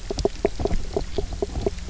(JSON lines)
{"label": "biophony, knock croak", "recorder": "SoundTrap 300"}